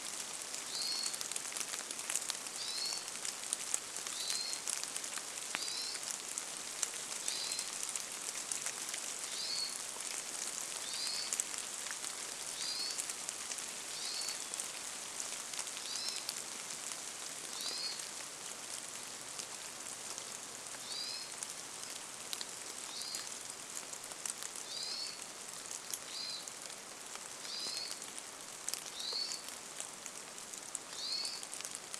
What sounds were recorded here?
rain, Hermit Thrush call, Hermit Thrush song